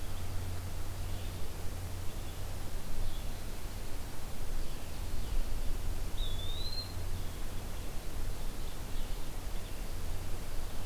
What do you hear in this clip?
Red Crossbill, Blue-headed Vireo, Eastern Wood-Pewee, Ovenbird